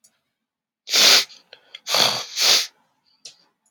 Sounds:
Sniff